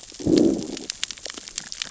{"label": "biophony, growl", "recorder": "SoundTrap 600 or HydroMoth"}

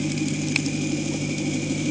{"label": "anthrophony, boat engine", "recorder": "HydroMoth"}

